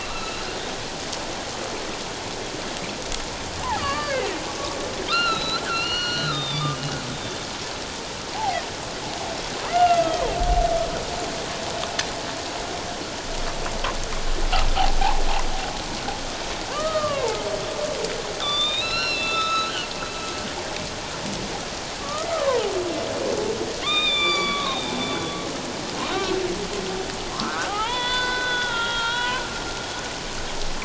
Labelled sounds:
3.8	4.2	humpback whale, 1.0 to 4.7 kHz
5.1	6.8	humpback whale, 1.1 to 5.8 kHz
7.1	7.4	humpback whale, 3.4 to 3.7 kHz
8.3	8.6	humpback whale, 0.78 to 0.94 kHz
9.7	10.3	humpback whale, 1.2 to 2.9 kHz
16.7	17.4	humpback whale, 0.81 to 1.3 kHz
18.4	19.7	humpback whale, 1.1 to 5.7 kHz
22.0	22.7	humpback whale, 0.78 to 1.4 kHz
23.8	25.4	humpback whale, 1.0 to 7.2 kHz
26.1	26.4	humpback whale, 1.3 to 1.6 kHz
27.3	29.4	humpback whale, 0.78 to 5.1 kHz

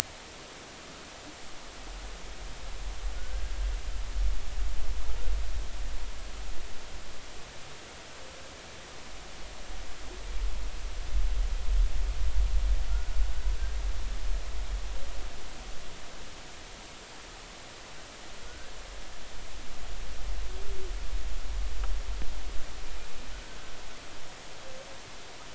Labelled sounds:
3.2	3.4	humpback whale, 1.4 to 1.7 kHz
12.9	13.2	humpback whale, 1.3 to 1.5 kHz
18.5	18.7	humpback whale, 1.4 to 1.7 kHz

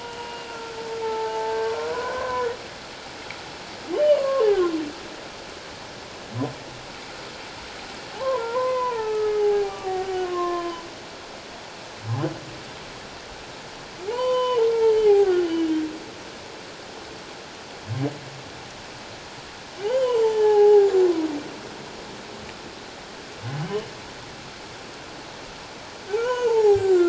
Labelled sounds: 0.0	1.6	humpback whale, 0.81 to 2.9 kHz
1.8	2.5	humpback whale, 0.94 to 1.6 kHz
3.9	4.8	humpback whale, 0.97 to 3.1 kHz
8.1	10.8	humpback whale, 0.78 to 3.2 kHz
14.1	15.7	humpback whale, 0.78 to 3.1 kHz
19.8	21.0	humpback whale, 0.78 to 3.2 kHz
23.6	23.9	humpback whale, 2.9 to 3.0 kHz
26.2	27.0	humpback whale, 0.78 to 3.1 kHz

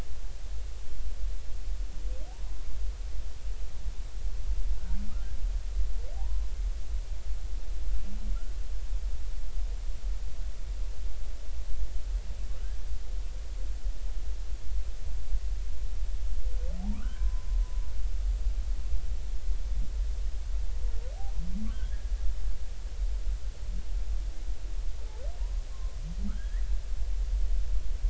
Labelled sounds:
6.1	6.5	humpback whale, 0.80 to 1.1 kHz
16.8	17.5	humpback whale, 0.80 to 1.7 kHz
21.7	22.1	humpback whale, 1.4 to 1.9 kHz
25.4	26.0	humpback whale, 0.90 to 1.2 kHz
26.3	26.6	humpback whale, 1.2 to 2.0 kHz

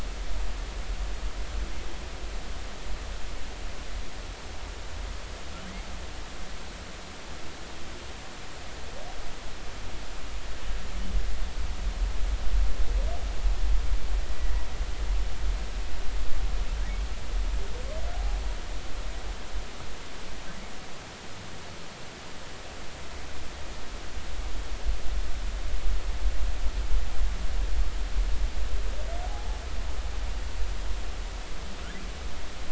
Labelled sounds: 14.3	14.6	humpback whale, 1.8 to 2.0 kHz
29.2	29.6	humpback whale, 0.80 to 0.90 kHz

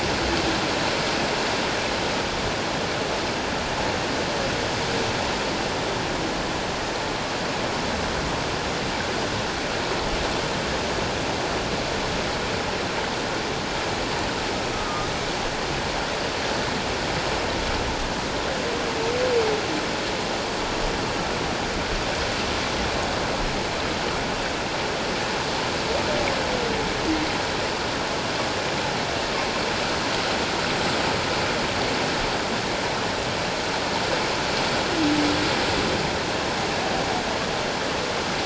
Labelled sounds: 14.7	15.1	humpback whale, 1.2 to 1.3 kHz

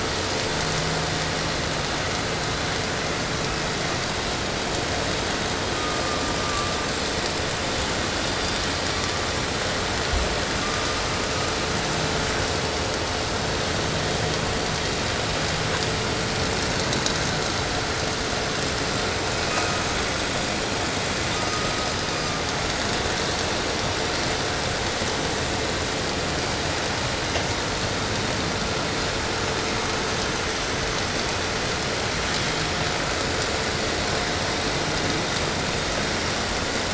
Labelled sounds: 3.2	4.2	killer whale, 0.91 to 3.0 kHz
5.6	7.0	killer whale, southern resident, call S17, 0.87 to 1.5 kHz
8.6	9.3	killer whale, 0.80 to 1.5 kHz
10.5	11.8	killer whale, southern resident, call S17, 0.89 to 1.4 kHz
19.2	20.3	killer whale, southern resident, call S17, 1.0 to 5.6 kHz
21.1	22.5	killer whale, southern resident, call S17, 1.0 to 7.5 kHz

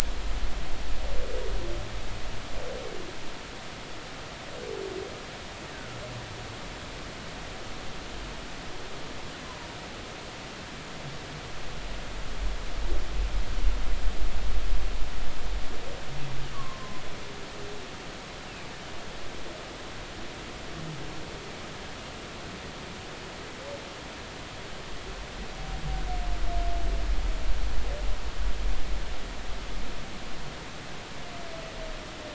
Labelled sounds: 5.7	6.0	humpback whale, 1.3 to 1.7 kHz
9.4	9.7	humpback whale, 0.93 to 1.1 kHz
16.5	17.0	humpback whale, 0.96 to 1.2 kHz

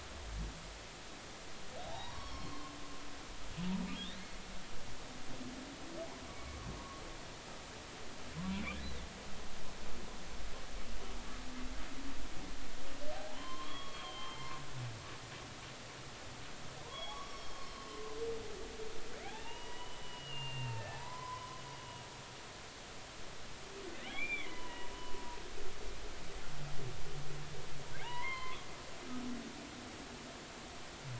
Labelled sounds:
1.8	2.5	humpback whale, 0.80 to 5.6 kHz
3.2	3.5	humpback whale, 3.1 to 3.4 kHz
6.4	7.0	humpback whale, 0.99 to 1.2 kHz
8.8	9.1	humpback whale, 3.4 to 4.1 kHz
13.1	14.5	humpback whale, 0.80 to 3.4 kHz
16.8	17.8	humpback whale, 0.90 to 5.6 kHz
19.3	21.6	humpback whale, 0.80 to 3.7 kHz
24.1	25.2	humpback whale, 0.90 to 3.6 kHz
28.0	28.7	humpback whale, 0.80 to 4.4 kHz

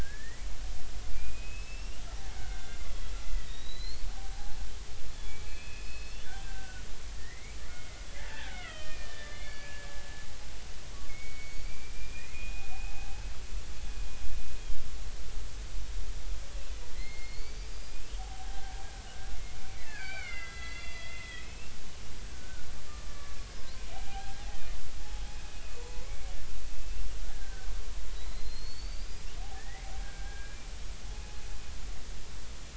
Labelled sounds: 0.0	6.8	killer whale, Bigg's (transient), 0.80 to 5.6 kHz
7.2	9.9	killer whale, Bigg's (transient), 1.2 to 3.4 kHz
11.1	13.2	killer whale, Bigg's (transient), 0.80 to 4.8 kHz
17.0	18.7	killer whale, Bigg's (transient), 0.80 to 4.9 kHz
19.1	22.7	killer whale, Bigg's (transient), 1.3 to 5.0 kHz
23.1	24.4	killer whale, Bigg's (transient), 0.80 to 1.8 kHz
25.8	26.3	killer whale, Bigg's (transient), 0.93 to 2.3 kHz
27.3	27.7	killer whale, Bigg's (transient), 1.4 to 1.7 kHz
29.1	30.7	killer whale, Bigg's (transient), 1.4 to 5.0 kHz

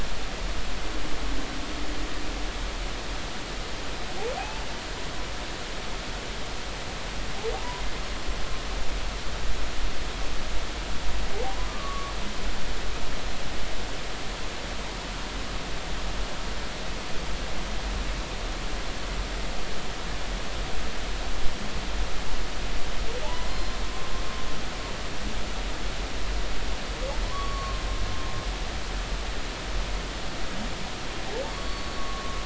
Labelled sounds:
4.4	4.6	humpback whale, 0.80 to 0.93 kHz
11.7	12.1	humpback whale, 1.1 to 1.2 kHz
23.2	23.7	humpback whale, 0.80 to 4.2 kHz
27.3	27.8	humpback whale, 0.96 to 4.5 kHz
31.5	32.4	humpback whale, 1.1 to 4.5 kHz

